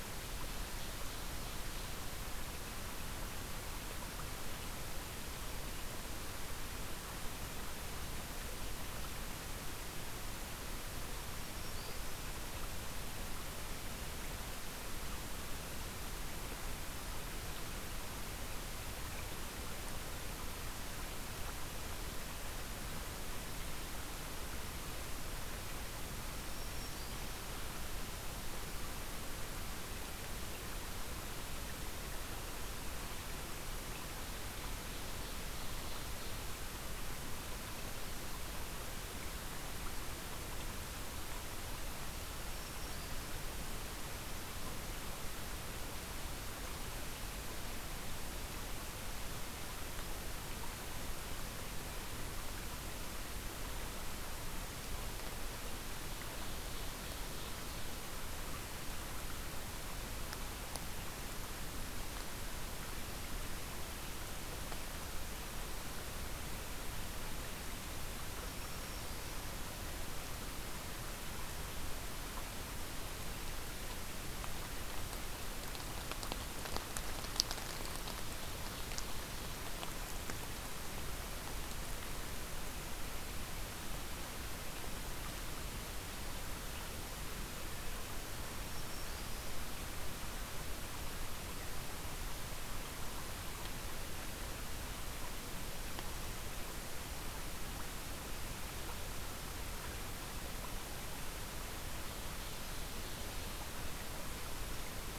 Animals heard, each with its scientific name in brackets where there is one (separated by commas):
Black-throated Green Warbler (Setophaga virens), Ovenbird (Seiurus aurocapilla)